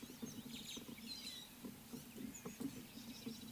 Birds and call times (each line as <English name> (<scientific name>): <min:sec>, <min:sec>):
White-headed Buffalo-Weaver (Dinemellia dinemelli): 0:01.2